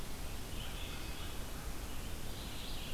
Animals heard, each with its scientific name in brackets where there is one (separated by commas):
American Crow (Corvus brachyrhynchos), Red-eyed Vireo (Vireo olivaceus)